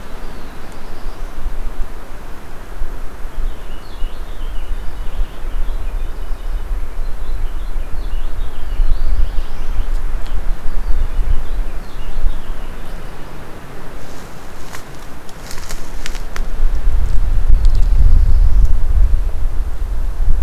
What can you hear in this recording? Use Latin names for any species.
Setophaga caerulescens, Haemorhous purpureus